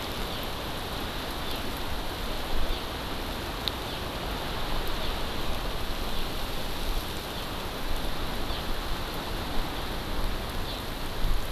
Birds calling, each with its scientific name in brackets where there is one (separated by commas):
House Finch (Haemorhous mexicanus)